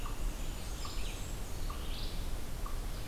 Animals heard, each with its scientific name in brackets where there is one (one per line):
Red-eyed Vireo (Vireo olivaceus)
Blackburnian Warbler (Setophaga fusca)
unknown mammal